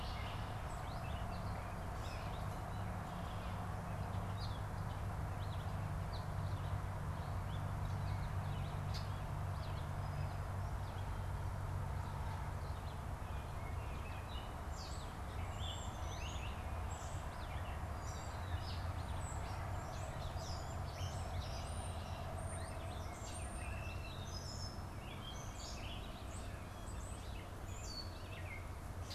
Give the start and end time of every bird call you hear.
0.0s-2.5s: Gray Catbird (Dumetella carolinensis)
0.0s-11.3s: Red-eyed Vireo (Vireo olivaceus)
14.1s-29.1s: Gray Catbird (Dumetella carolinensis)
14.2s-29.1s: Red-eyed Vireo (Vireo olivaceus)
15.2s-26.2s: European Starling (Sturnus vulgaris)

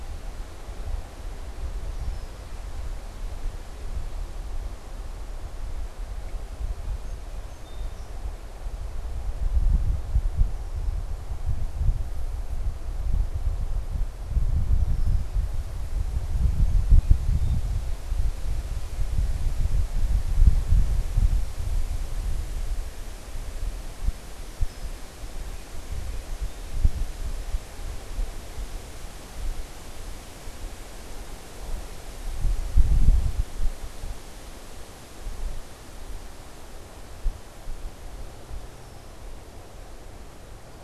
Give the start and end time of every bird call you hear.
1.7s-2.7s: Red-winged Blackbird (Agelaius phoeniceus)
6.8s-8.3s: Song Sparrow (Melospiza melodia)
10.2s-15.3s: Red-winged Blackbird (Agelaius phoeniceus)
16.2s-18.0s: Song Sparrow (Melospiza melodia)
24.2s-25.2s: Red-winged Blackbird (Agelaius phoeniceus)
25.4s-27.0s: Song Sparrow (Melospiza melodia)
38.6s-39.2s: Red-winged Blackbird (Agelaius phoeniceus)

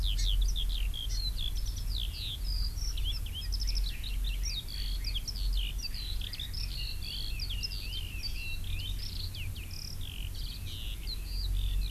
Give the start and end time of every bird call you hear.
0.0s-11.9s: Eurasian Skylark (Alauda arvensis)
0.1s-0.2s: Hawaii Amakihi (Chlorodrepanis virens)
1.1s-1.2s: Hawaii Amakihi (Chlorodrepanis virens)
6.6s-8.9s: Red-billed Leiothrix (Leiothrix lutea)

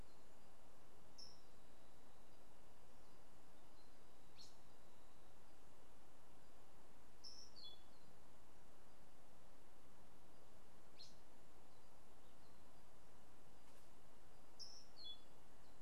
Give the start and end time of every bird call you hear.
7.0s-7.9s: Orange-billed Nightingale-Thrush (Catharus aurantiirostris)

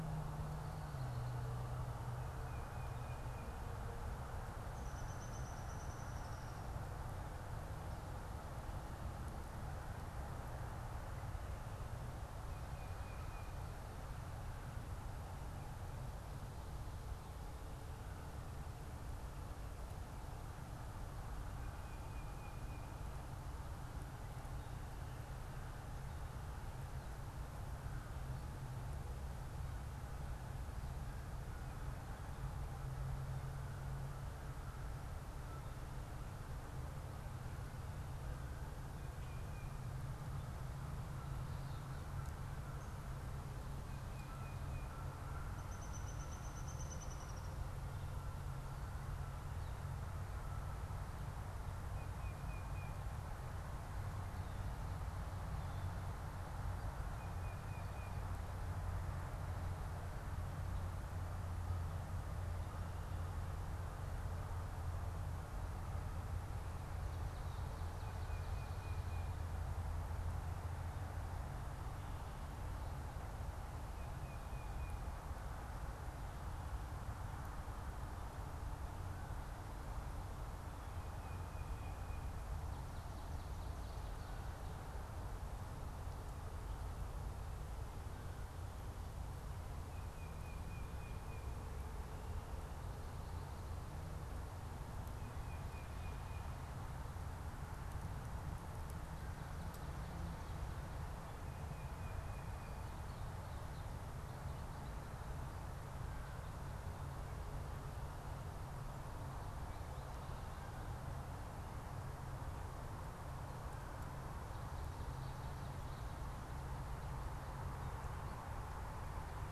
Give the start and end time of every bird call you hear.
4.6s-6.5s: Tufted Titmouse (Baeolophus bicolor)
12.3s-13.7s: Downy Woodpecker (Dryobates pubescens)
21.5s-23.2s: Tufted Titmouse (Baeolophus bicolor)
39.1s-40.0s: Tufted Titmouse (Baeolophus bicolor)
43.8s-45.1s: Tufted Titmouse (Baeolophus bicolor)
45.4s-47.7s: Downy Woodpecker (Dryobates pubescens)
51.8s-53.1s: Tufted Titmouse (Baeolophus bicolor)
56.9s-58.4s: Tufted Titmouse (Baeolophus bicolor)
67.8s-69.5s: Tufted Titmouse (Baeolophus bicolor)
73.8s-75.2s: Tufted Titmouse (Baeolophus bicolor)
81.2s-82.4s: Tufted Titmouse (Baeolophus bicolor)
89.8s-91.6s: Tufted Titmouse (Baeolophus bicolor)
95.1s-96.6s: Tufted Titmouse (Baeolophus bicolor)
101.5s-102.9s: Tufted Titmouse (Baeolophus bicolor)

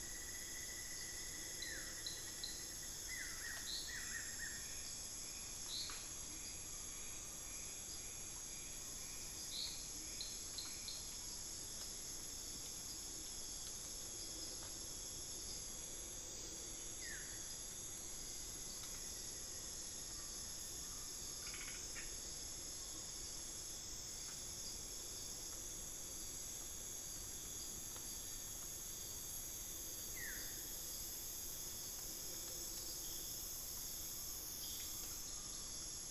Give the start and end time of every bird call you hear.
0.0s-3.2s: Cinnamon-throated Woodcreeper (Dendrexetastes rufigula)
1.4s-5.0s: Buff-throated Woodcreeper (Xiphorhynchus guttatus)
6.6s-23.6s: Collared Forest-Falcon (Micrastur semitorquatus)
16.7s-17.6s: Buff-throated Woodcreeper (Xiphorhynchus guttatus)
17.3s-21.1s: unidentified bird
29.9s-30.8s: Buff-throated Woodcreeper (Xiphorhynchus guttatus)
33.9s-36.0s: Collared Forest-Falcon (Micrastur semitorquatus)

